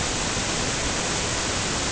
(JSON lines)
{"label": "ambient", "recorder": "HydroMoth"}